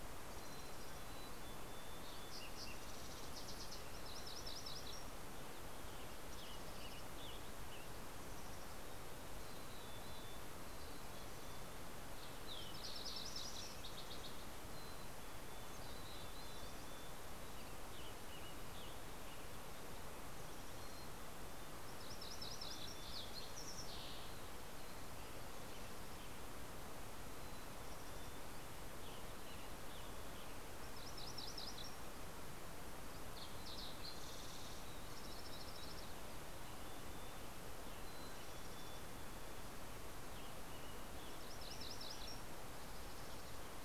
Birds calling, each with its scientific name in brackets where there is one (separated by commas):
Fox Sparrow (Passerella iliaca), Mountain Chickadee (Poecile gambeli), MacGillivray's Warbler (Geothlypis tolmiei), Western Tanager (Piranga ludoviciana)